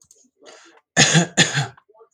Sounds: Cough